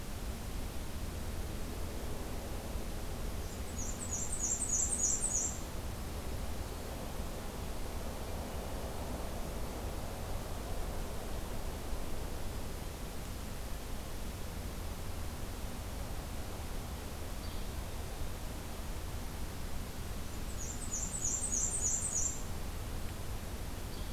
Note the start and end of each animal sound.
3.4s-5.6s: Black-and-white Warbler (Mniotilta varia)
17.3s-17.7s: Yellow-bellied Flycatcher (Empidonax flaviventris)
20.3s-22.5s: Black-and-white Warbler (Mniotilta varia)
23.8s-24.1s: Yellow-bellied Flycatcher (Empidonax flaviventris)

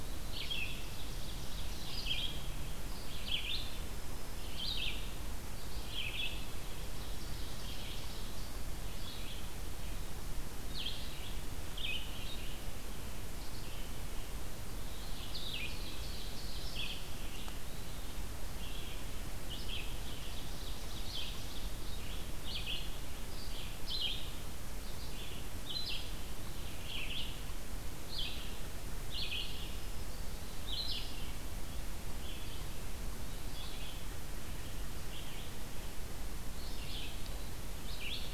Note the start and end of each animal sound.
0.0s-38.3s: Red-eyed Vireo (Vireo olivaceus)
0.2s-2.2s: Ovenbird (Seiurus aurocapilla)
6.6s-8.5s: Ovenbird (Seiurus aurocapilla)
15.4s-17.0s: Ovenbird (Seiurus aurocapilla)
19.6s-21.5s: Ovenbird (Seiurus aurocapilla)

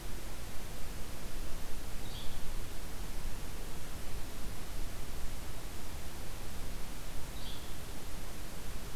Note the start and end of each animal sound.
1.9s-2.3s: Yellow-bellied Flycatcher (Empidonax flaviventris)
7.3s-7.7s: Yellow-bellied Flycatcher (Empidonax flaviventris)

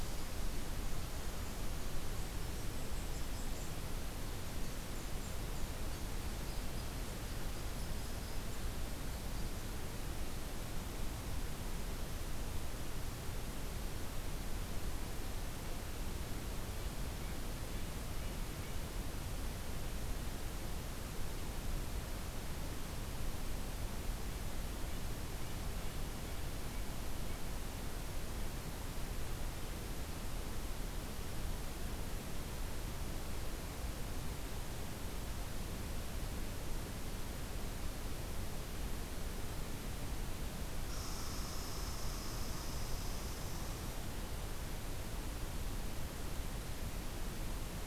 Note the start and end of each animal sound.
0.0s-10.1s: Red Squirrel (Tamiasciurus hudsonicus)
40.7s-44.3s: Red Squirrel (Tamiasciurus hudsonicus)

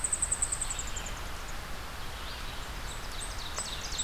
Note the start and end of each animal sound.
0.0s-1.3s: unidentified call
0.0s-4.0s: Red-eyed Vireo (Vireo olivaceus)
2.6s-4.0s: Ovenbird (Seiurus aurocapilla)
2.8s-4.0s: unidentified call

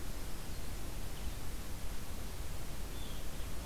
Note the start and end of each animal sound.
0.0s-0.8s: Black-throated Green Warbler (Setophaga virens)
0.0s-3.7s: Red-eyed Vireo (Vireo olivaceus)

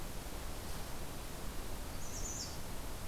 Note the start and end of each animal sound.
1.8s-2.9s: American Redstart (Setophaga ruticilla)

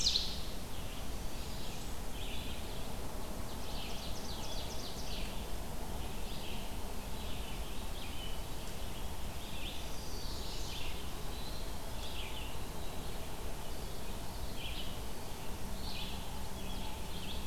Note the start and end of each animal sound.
0.0s-0.2s: Ovenbird (Seiurus aurocapilla)
0.2s-17.5s: Red-eyed Vireo (Vireo olivaceus)
3.1s-5.5s: Ovenbird (Seiurus aurocapilla)
9.6s-10.9s: Chestnut-sided Warbler (Setophaga pensylvanica)
11.2s-12.6s: Eastern Wood-Pewee (Contopus virens)

